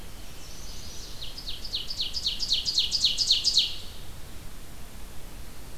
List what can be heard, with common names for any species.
Chestnut-sided Warbler, Ovenbird